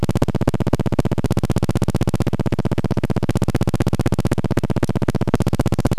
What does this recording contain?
recorder noise